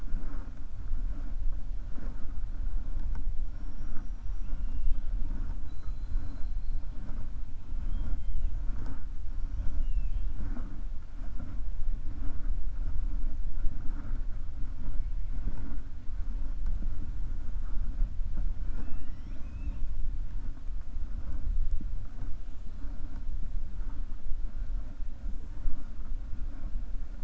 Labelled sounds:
3.5	5.1	killer whale, 2.2 to 6.8 kHz
5.5	6.8	killer whale, 3.4 to 4.5 kHz
19.0	19.5	killer whale, 5.0 to 6.4 kHz

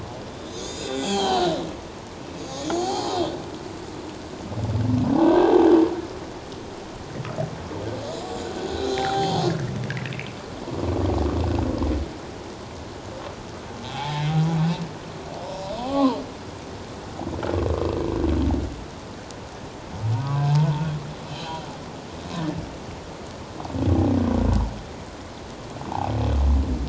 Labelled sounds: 0.4	1.5	humpback whale, 0.78 to 7.1 kHz
2.4	3.2	humpback whale, 0.78 to 7.1 kHz
5.1	5.7	humpback whale, 0.78 to 1.7 kHz
8.8	9.4	humpback whale, 0.78 to 3.3 kHz
13.9	14.3	humpback whale, 0.78 to 0.94 kHz
15.8	16.2	humpback whale, 0.78 to 1.3 kHz
20.1	20.5	humpback whale, 0.91 to 1.3 kHz
21.3	21.6	humpback whale, 3.0 to 4.1 kHz

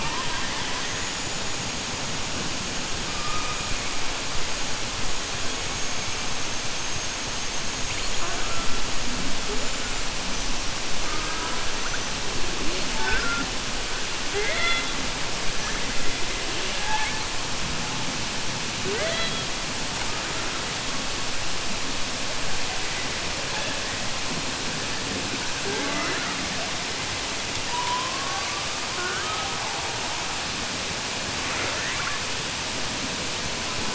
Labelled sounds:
31.4	32.2	killer whale, southern resident, 0.35 to 2.8 kHz

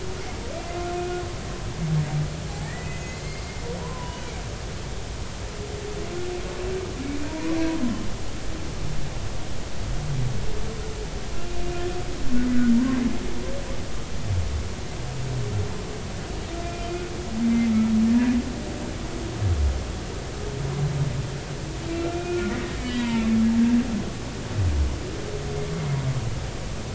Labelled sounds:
1.0	1.2	humpback whale, 1.3 to 1.5 kHz
2.5	4.3	humpback whale, 0.80 to 6.8 kHz
7.3	7.5	humpback whale, 0.90 to 1.1 kHz
12.7	13.0	humpback whale, 0.90 to 1.1 kHz
21.9	22.5	humpback whale, 1.3 to 2.5 kHz
22.8	23.3	humpback whale, 0.86 to 3.0 kHz

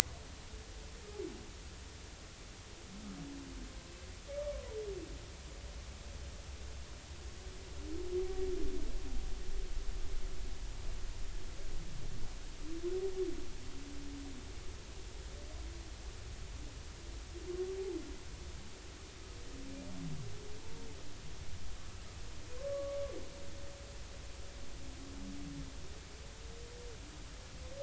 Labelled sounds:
20.6	20.9	humpback whale, 0.86 to 0.93 kHz
22.6	23.0	humpback whale, 0.99 to 1.2 kHz

